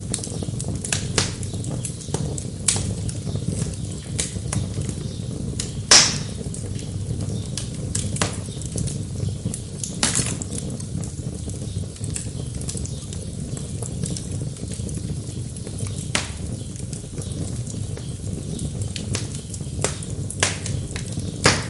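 Fire burning closely with occasional crackling of wood. 0:00.0 - 0:21.7

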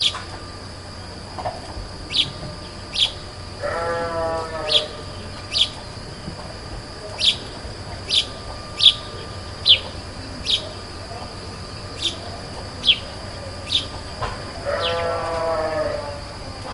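Birds chirp intermittently in the early evening. 0:00.0 - 0:00.3
A hen clucks softly in the background. 0:01.3 - 0:02.0
Birds chirp intermittently in the early evening. 0:02.1 - 0:03.2
A cow emits muffled moos in the early evening. 0:03.5 - 0:04.6
Birds chirp intermittently in the early evening. 0:04.6 - 0:05.9
Birds chirp intermittently in the early evening. 0:07.2 - 0:10.7
Birds chirp intermittently in the early evening. 0:12.0 - 0:13.9
A hen clucks softly in the background. 0:14.0 - 0:14.7
A cow emits muffled moos in the early evening. 0:14.5 - 0:16.2
A hen clucks softly in the background. 0:16.4 - 0:16.7

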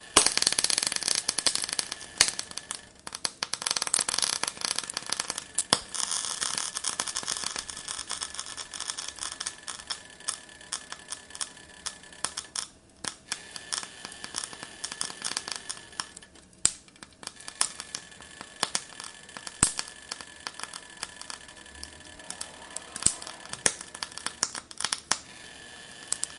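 A high-frequency loud crackling sound repeats, caused by cooking indoors. 0:00.2 - 0:05.9
Low-frequency, quiet crackling sound of cooking indoors. 0:05.8 - 0:26.4
A single loud pop from indoor cooking crackling. 0:16.5 - 0:16.8
A single loud pop from indoor cooking crackling. 0:17.5 - 0:17.8
A single loud pop from indoor cooking crackling. 0:18.6 - 0:18.9
A single loud pop from indoor cooking crackling. 0:19.6 - 0:19.8
A muffled, quiet spinning sound from an indoor device in the background. 0:22.2 - 0:23.9
A single loud pop from indoor cooking crackling. 0:23.0 - 0:23.8
A single loud pop from indoor cooking crackling. 0:24.4 - 0:24.5

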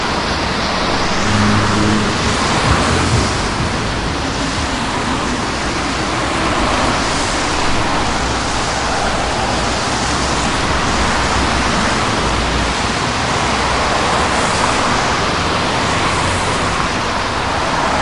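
Heavy traffic is passing on a very wet road. 0:00.0 - 0:18.0
A vehicle drives over a rumble strip, producing a loud rumbling sound. 0:01.1 - 0:02.2
Music playing in a moving vehicle. 0:02.6 - 0:03.3

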